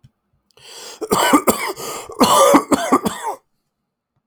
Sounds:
Cough